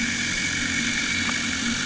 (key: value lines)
label: anthrophony, boat engine
recorder: HydroMoth